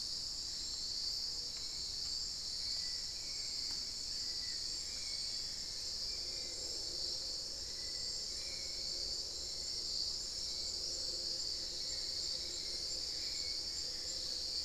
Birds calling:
Hauxwell's Thrush (Turdus hauxwelli), Gray Antwren (Myrmotherula menetriesii)

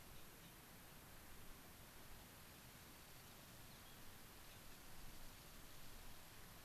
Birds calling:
White-crowned Sparrow (Zonotrichia leucophrys)

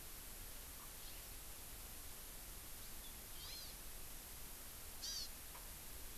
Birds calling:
Hawaii Amakihi (Chlorodrepanis virens)

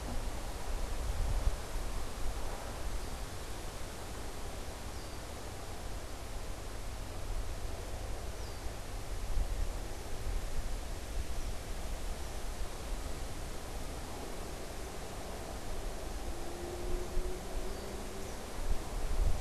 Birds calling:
Red-winged Blackbird (Agelaius phoeniceus), Eastern Kingbird (Tyrannus tyrannus), unidentified bird

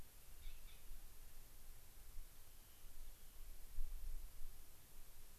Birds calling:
Rock Wren (Salpinctes obsoletus)

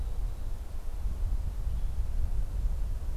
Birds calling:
Western Tanager (Piranga ludoviciana), Mountain Chickadee (Poecile gambeli)

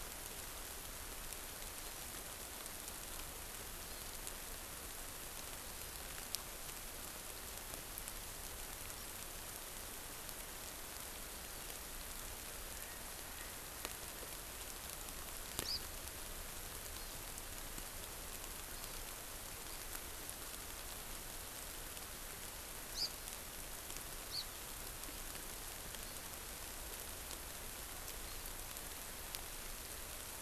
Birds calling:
Hawaii Amakihi (Chlorodrepanis virens)

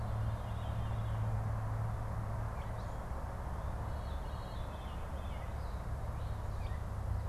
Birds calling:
Veery (Catharus fuscescens), Gray Catbird (Dumetella carolinensis)

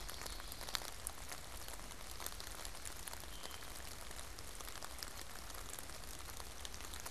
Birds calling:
Veery (Catharus fuscescens), Common Yellowthroat (Geothlypis trichas)

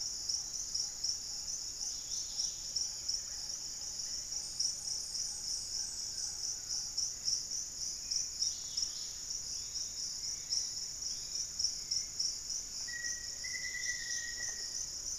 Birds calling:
Dusky-capped Greenlet (Pachysylvia hypoxantha), Bluish-fronted Jacamar (Galbula cyanescens), Black-faced Antthrush (Formicarius analis), Yellow-margined Flycatcher (Tolmomyias assimilis), Black-tailed Trogon (Trogon melanurus), Lemon-throated Barbet (Eubucco richardsoni), Hauxwell's Thrush (Turdus hauxwelli), White-lored Tyrannulet (Ornithion inerme), unidentified bird, Collared Trogon (Trogon collaris)

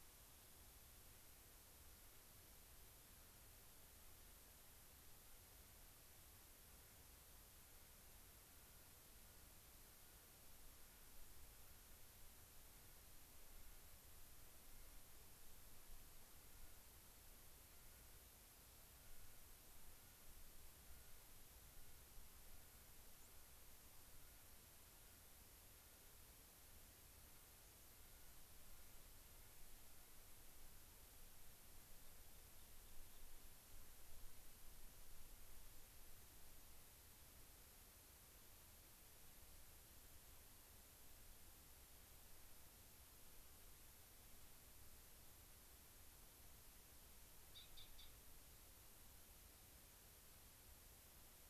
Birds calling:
unidentified bird, Rock Wren (Salpinctes obsoletus), Clark's Nutcracker (Nucifraga columbiana)

